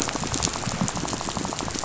{"label": "biophony, rattle", "recorder": "SoundTrap 500"}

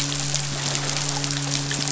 {"label": "biophony, midshipman", "recorder": "SoundTrap 500"}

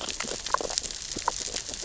{"label": "biophony, grazing", "recorder": "SoundTrap 600 or HydroMoth"}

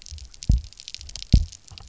{"label": "biophony, double pulse", "recorder": "SoundTrap 300"}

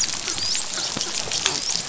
{"label": "biophony, dolphin", "recorder": "SoundTrap 500"}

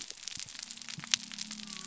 {"label": "biophony", "recorder": "SoundTrap 300"}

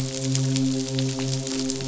{"label": "biophony, midshipman", "recorder": "SoundTrap 500"}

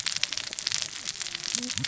{"label": "biophony, cascading saw", "recorder": "SoundTrap 600 or HydroMoth"}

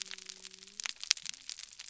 {"label": "biophony", "recorder": "SoundTrap 300"}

